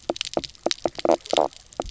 {"label": "biophony, knock croak", "recorder": "SoundTrap 300"}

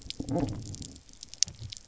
{"label": "biophony, low growl", "recorder": "SoundTrap 300"}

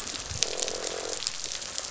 {"label": "biophony, croak", "recorder": "SoundTrap 500"}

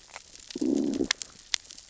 {"label": "biophony, growl", "recorder": "SoundTrap 600 or HydroMoth"}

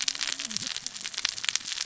{"label": "biophony, cascading saw", "recorder": "SoundTrap 600 or HydroMoth"}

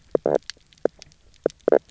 {"label": "biophony, knock croak", "recorder": "SoundTrap 300"}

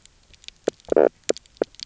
{"label": "biophony, knock croak", "recorder": "SoundTrap 300"}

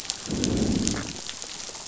{"label": "biophony, growl", "recorder": "SoundTrap 500"}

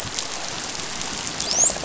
{"label": "biophony, dolphin", "recorder": "SoundTrap 500"}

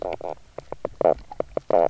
{"label": "biophony, knock croak", "recorder": "SoundTrap 300"}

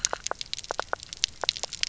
{"label": "biophony, knock croak", "recorder": "SoundTrap 300"}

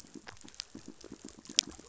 {"label": "biophony, pulse", "recorder": "SoundTrap 500"}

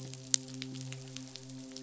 {"label": "biophony, midshipman", "recorder": "SoundTrap 500"}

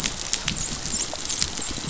{"label": "biophony, dolphin", "recorder": "SoundTrap 500"}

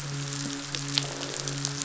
{"label": "biophony, midshipman", "recorder": "SoundTrap 500"}
{"label": "biophony, croak", "recorder": "SoundTrap 500"}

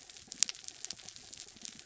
{"label": "anthrophony, mechanical", "recorder": "SoundTrap 300"}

